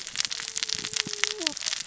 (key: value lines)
label: biophony, cascading saw
recorder: SoundTrap 600 or HydroMoth